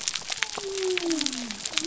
{"label": "biophony", "recorder": "SoundTrap 300"}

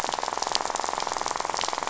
{"label": "biophony, rattle", "recorder": "SoundTrap 500"}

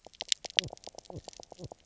{"label": "biophony, knock croak", "recorder": "SoundTrap 300"}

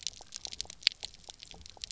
{"label": "biophony, pulse", "recorder": "SoundTrap 300"}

